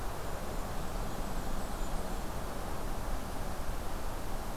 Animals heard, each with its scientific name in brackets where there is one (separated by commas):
Blackburnian Warbler (Setophaga fusca), Golden-crowned Kinglet (Regulus satrapa)